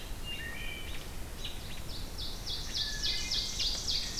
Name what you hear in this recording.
Wood Thrush, American Robin, Ovenbird